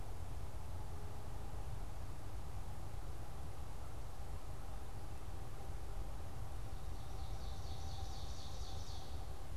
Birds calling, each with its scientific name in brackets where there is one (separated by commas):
Ovenbird (Seiurus aurocapilla)